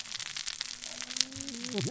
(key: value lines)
label: biophony, cascading saw
recorder: SoundTrap 600 or HydroMoth